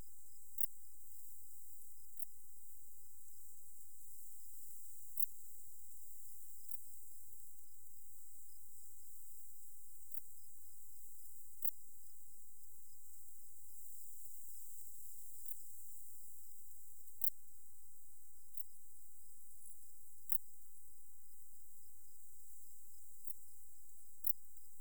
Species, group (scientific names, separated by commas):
Pholidoptera femorata, Orthoptera